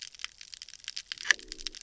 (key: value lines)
label: biophony
recorder: SoundTrap 300